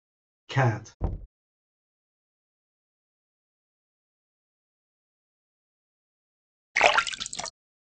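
At 0.49 seconds, someone says "cat". Then at 1.0 seconds, knocking is heard. Finally, at 6.75 seconds, you can hear splashing.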